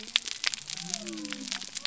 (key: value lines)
label: biophony
recorder: SoundTrap 300